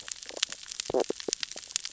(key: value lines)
label: biophony, stridulation
recorder: SoundTrap 600 or HydroMoth